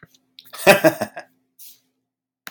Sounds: Laughter